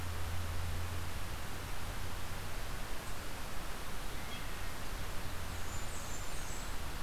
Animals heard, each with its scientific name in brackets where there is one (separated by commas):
Blackburnian Warbler (Setophaga fusca)